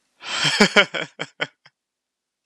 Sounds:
Laughter